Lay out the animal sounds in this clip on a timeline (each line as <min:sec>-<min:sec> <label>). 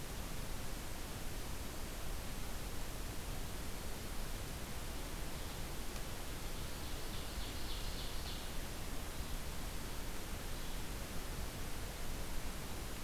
0:06.3-0:08.6 Ovenbird (Seiurus aurocapilla)